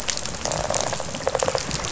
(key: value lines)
label: biophony, rattle response
recorder: SoundTrap 500